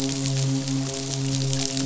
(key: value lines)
label: biophony, midshipman
recorder: SoundTrap 500